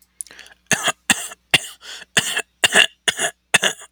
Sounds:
Cough